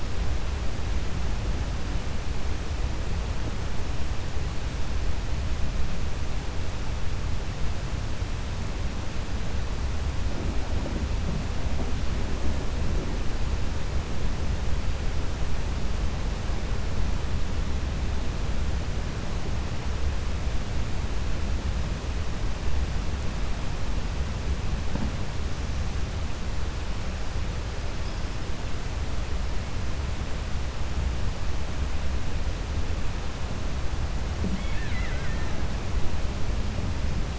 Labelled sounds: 34.5	35.6	killer whale, Bigg's (transient), 0.99 to 4.1 kHz

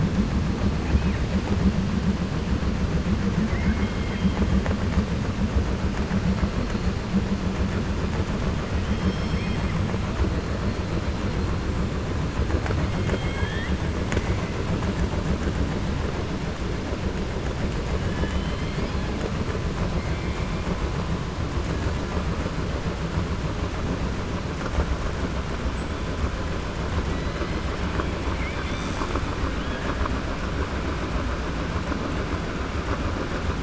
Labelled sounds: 3.4	4.4	killer whale, 1.1 to 3.3 kHz
8.7	9.7	killer whale, 2.0 to 6.3 kHz
12.9	13.8	killer whale, 0.39 to 4.1 kHz
18.0	19.1	killer whale, 1.0 to 5.0 kHz

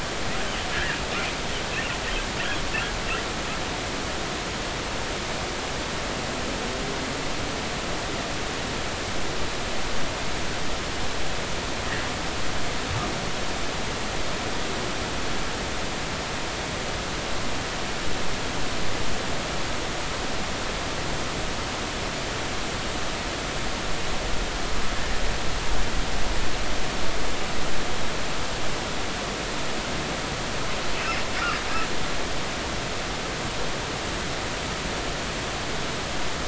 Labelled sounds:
0.7	1.0	humpback whale, 1.5 to 2.0 kHz

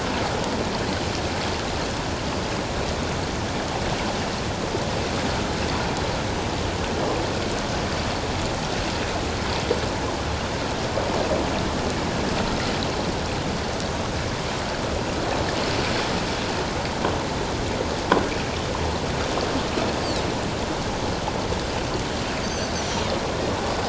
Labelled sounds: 22.4	22.7	Pacific white-sided dolphin, 4.2 to 6.4 kHz

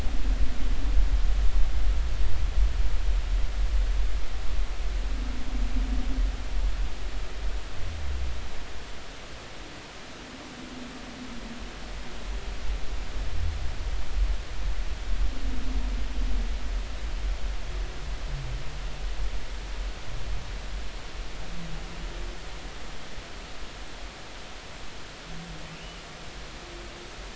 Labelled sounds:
25.7	26.0	humpback whale, 2.6 to 3.0 kHz

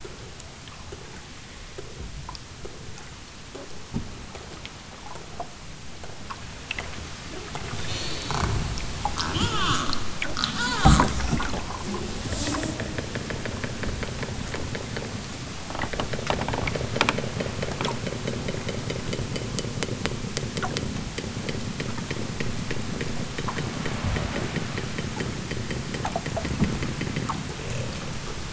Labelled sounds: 9.0	11.2	killer whale, southern Alaska resident, 0.46 to 8.0 kHz

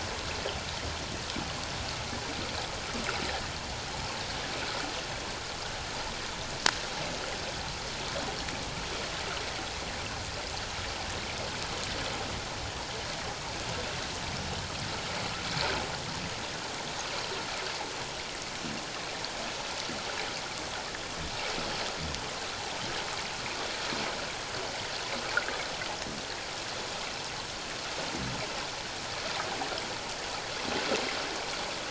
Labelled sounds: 25.3	25.6	water noise, 1.2 to 1.9 kHz

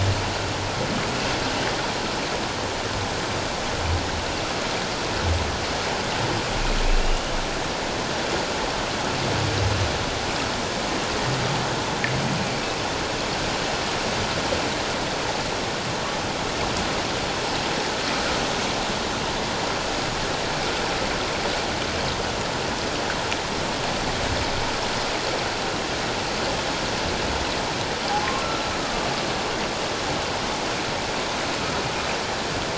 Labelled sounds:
6.8	7.4	humpback whale, 2.4 to 3.1 kHz
28.8	29.1	humpback whale, 1.1 to 1.3 kHz

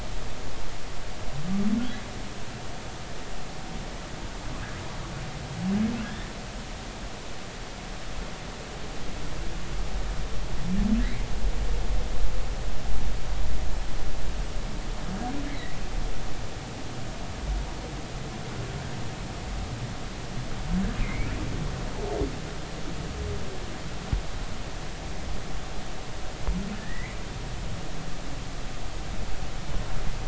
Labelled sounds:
6.0	6.3	humpback whale, 1.6 to 2.0 kHz
11.0	11.3	humpback whale, 1.9 to 2.4 kHz
15.5	15.7	humpback whale, 1.9 to 2.3 kHz
21.0	21.3	humpback whale, 2.0 to 2.5 kHz
26.7	27.2	humpback whale, 1.7 to 2.4 kHz

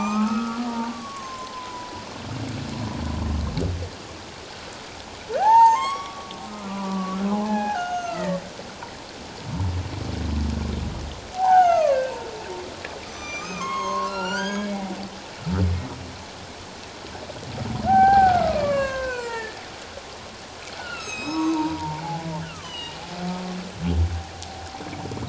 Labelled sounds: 1.5	2.0	humpback whale, 0.94 to 1.1 kHz
5.3	8.4	humpback whale, 0.78 to 7.9 kHz
11.3	12.1	humpback whale, 0.78 to 3.0 kHz
13.1	14.8	humpback whale, 0.88 to 7.4 kHz
17.9	19.6	humpback whale, 0.78 to 4.7 kHz
20.8	23.0	humpback whale, 0.78 to 7.9 kHz

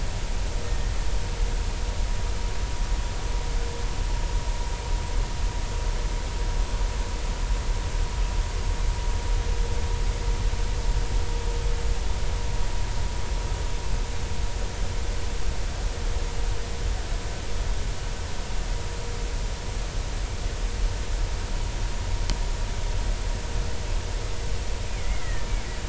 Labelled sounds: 0.7	0.9	killer whale, Bigg's (transient), 1.8 to 1.9 kHz
25.0	25.5	killer whale, Bigg's (transient), 1.7 to 2.3 kHz

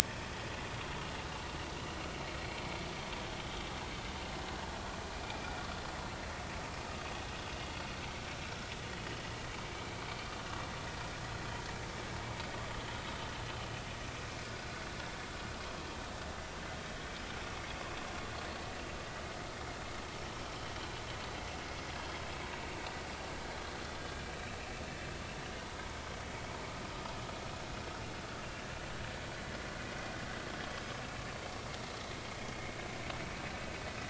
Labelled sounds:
24.0	24.2	vessel noise, 1.6 to 1.7 kHz

